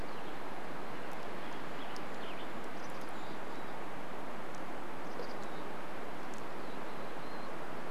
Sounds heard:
Mountain Chickadee call, Golden-crowned Kinglet song, Western Tanager song

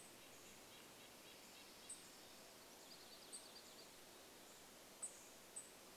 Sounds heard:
unidentified bird chip note, warbler song, Red-breasted Nuthatch song

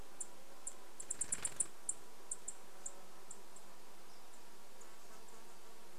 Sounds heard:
bird wingbeats, insect buzz, Dark-eyed Junco call

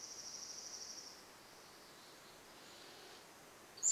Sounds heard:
Dark-eyed Junco song, unidentified sound, Pacific-slope Flycatcher song

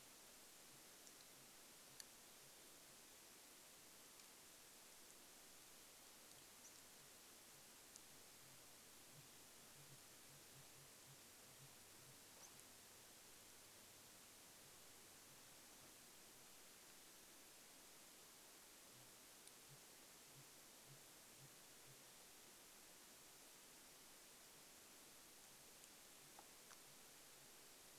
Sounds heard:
unidentified bird chip note, Sooty Grouse song

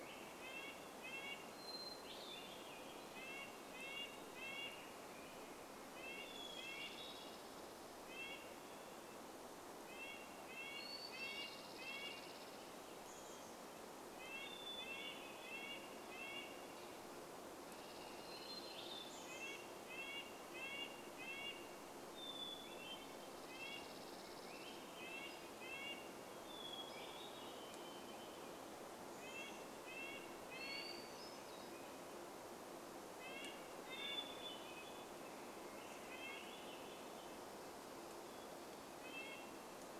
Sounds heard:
Red-breasted Nuthatch song, Swainson's Thrush song, Varied Thrush song, Chipping Sparrow song, Chestnut-backed Chickadee call, Townsend's Warbler call, Hermit Thrush song

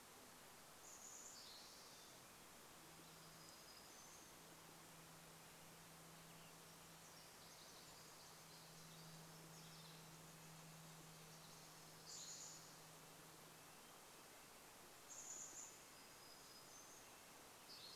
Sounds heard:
Chestnut-backed Chickadee call, Red-breasted Nuthatch song, Spotted Towhee song, Pacific Wren song, Western Tanager song, warbler song

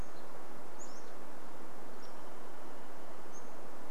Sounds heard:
Varied Thrush song, Pacific-slope Flycatcher song

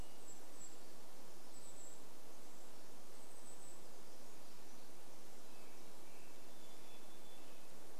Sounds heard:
Pacific Wren song, American Robin song, Varied Thrush song, Golden-crowned Kinglet song

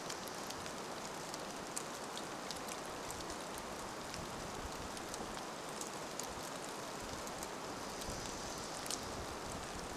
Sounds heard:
rain, Dark-eyed Junco song

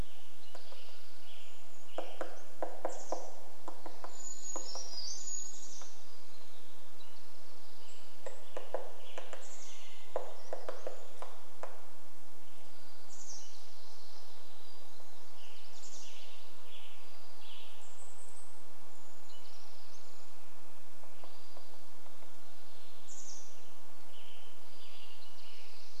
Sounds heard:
MacGillivray's Warbler song, woodpecker drumming, Western Tanager song, Brown Creeper song, unidentified sound, Townsend's Solitaire call, Hammond's Flycatcher song, Chestnut-backed Chickadee call, Mountain Quail call, Spotted Towhee song

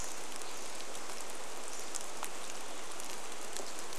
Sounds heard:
unidentified bird chip note, rain

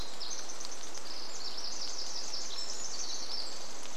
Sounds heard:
Pacific Wren song, rain

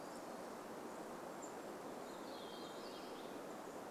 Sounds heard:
warbler song, unidentified bird chip note, Hermit Thrush song

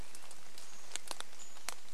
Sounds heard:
rain, Swainson's Thrush call, Chestnut-backed Chickadee call

